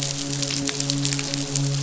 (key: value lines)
label: biophony, midshipman
recorder: SoundTrap 500